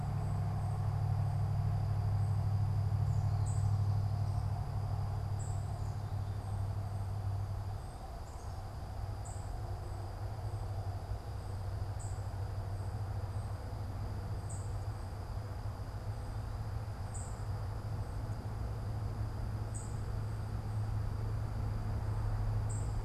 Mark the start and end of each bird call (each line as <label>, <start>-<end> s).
unidentified bird, 0.0-23.0 s